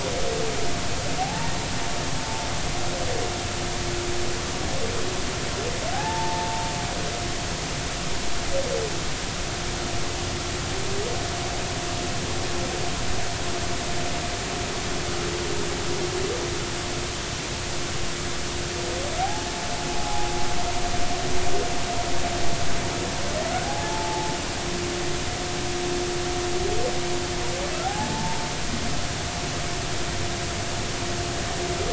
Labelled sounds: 1.2	1.5	humpback whale, 0.80 to 0.99 kHz
2.2	2.5	humpback whale, 0.80 to 0.93 kHz
5.9	6.7	humpback whale, 0.80 to 0.96 kHz
19.2	20.3	humpback whale, 0.80 to 0.96 kHz
23.6	24.3	humpback whale, 0.80 to 0.93 kHz
27.8	28.4	humpback whale, 0.80 to 0.96 kHz

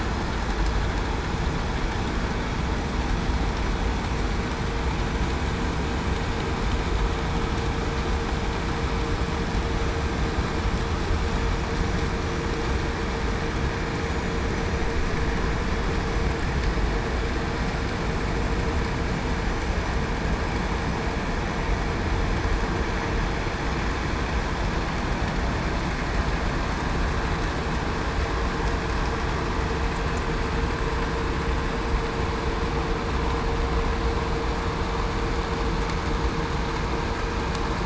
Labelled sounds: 9.7	10.0	vessel noise, 5.88 to 5.93 kHz

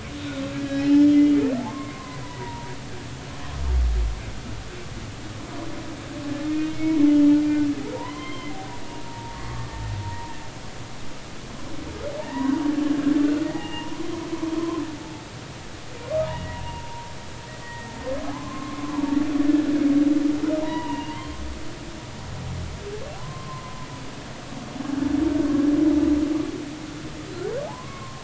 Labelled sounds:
0.5	1.4	humpback whale, 1.6 to 5.4 kHz
1.6	2.8	humpback whale, 0.86 to 2.2 kHz
6.7	7.4	humpback whale, 2.1 to 3.3 kHz
7.9	8.6	humpback whale, 0.90 to 3.2 kHz
9.1	10.3	humpback whale, 0.86 to 1.2 kHz
12.2	12.6	humpback whale, 0.86 to 2.0 kHz
13.4	14.8	humpback whale, 0.80 to 2.9 kHz
16.3	17.1	humpback whale, 0.90 to 2.0 kHz
17.6	17.9	humpback whale, 1.8 to 2.0 kHz
18.2	19.0	humpback whale, 0.80 to 1.2 kHz
20.6	21.4	humpback whale, 0.86 to 3.0 kHz
23.1	23.9	humpback whale, 0.80 to 1.1 kHz
27.7	28.2	humpback whale, 0.80 to 1.2 kHz

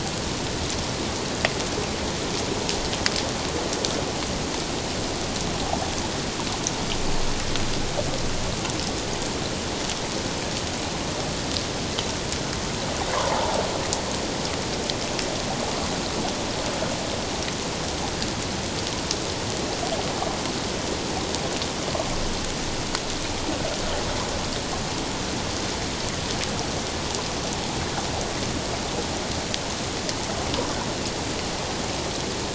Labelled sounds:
13.3	13.6	water noise, 0.78 to 1.1 kHz

